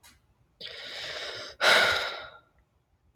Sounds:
Sigh